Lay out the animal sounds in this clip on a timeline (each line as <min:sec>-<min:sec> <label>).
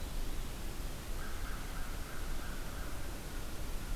0:01.0-0:03.3 American Crow (Corvus brachyrhynchos)